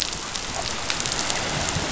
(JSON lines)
{"label": "biophony", "recorder": "SoundTrap 500"}